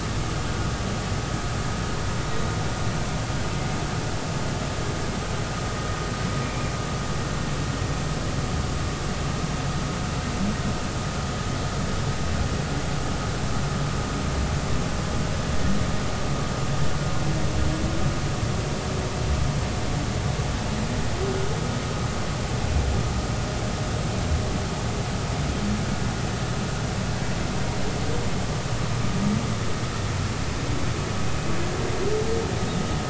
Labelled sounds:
6.4	6.7	humpback whale, 2.2 to 2.5 kHz

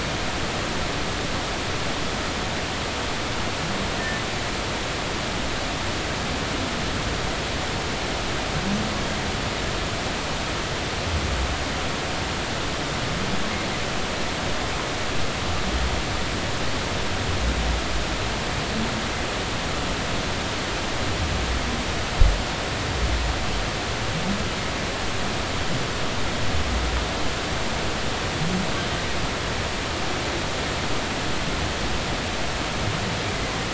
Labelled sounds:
3.9	4.2	humpback whale, 1.7 to 2.0 kHz

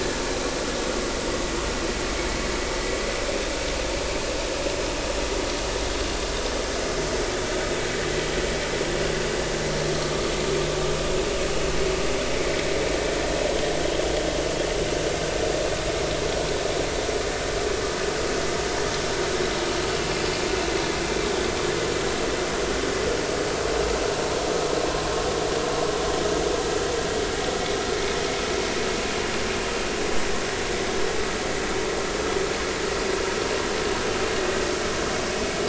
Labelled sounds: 9.9	10.3	vessel noise, 1.1 to 1.3 kHz

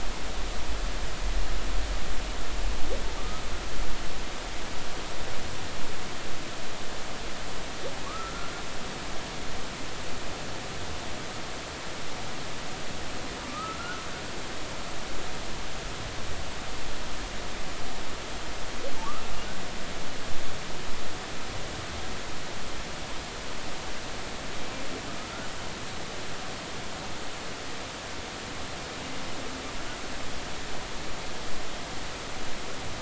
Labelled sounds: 3.2	3.4	humpback whale, 1.1 to 1.3 kHz
8.1	8.5	humpback whale, 1.1 to 1.4 kHz
13.5	14.0	humpback whale, 1.2 to 1.5 kHz
25.2	25.5	humpback whale, 1.2 to 1.5 kHz

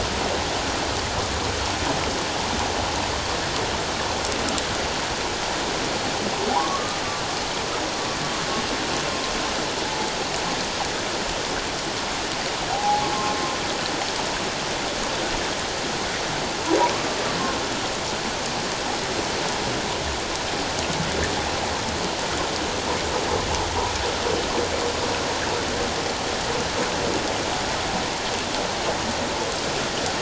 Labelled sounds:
6.5	7.0	humpback whale, 0.78 to 1.2 kHz
9.1	9.3	humpback whale, 1.0 to 1.1 kHz
12.7	13.1	humpback whale, 0.78 to 0.91 kHz
16.9	17.2	humpback whale, 1.1 to 1.2 kHz

